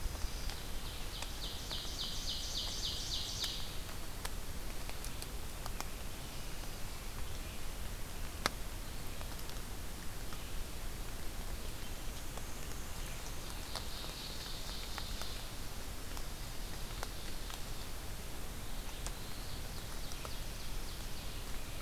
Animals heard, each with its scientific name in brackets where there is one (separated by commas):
Ovenbird (Seiurus aurocapilla), Black-throated Blue Warbler (Setophaga caerulescens), Ruffed Grouse (Bonasa umbellus), Red-eyed Vireo (Vireo olivaceus), Black-and-white Warbler (Mniotilta varia)